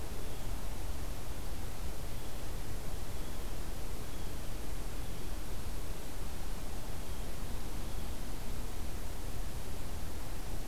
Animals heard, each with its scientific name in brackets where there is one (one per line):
Blue Jay (Cyanocitta cristata)